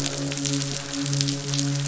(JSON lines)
{"label": "biophony, midshipman", "recorder": "SoundTrap 500"}